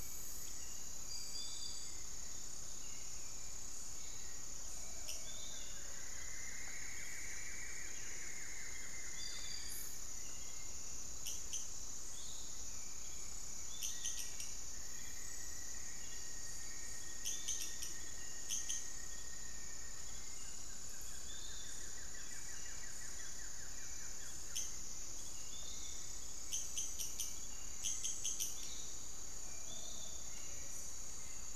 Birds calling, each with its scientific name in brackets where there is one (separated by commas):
Piratic Flycatcher (Legatus leucophaius), Black-faced Antthrush (Formicarius analis), Cinnamon-throated Woodcreeper (Dendrexetastes rufigula), Hauxwell's Thrush (Turdus hauxwelli), unidentified bird, Buff-throated Woodcreeper (Xiphorhynchus guttatus)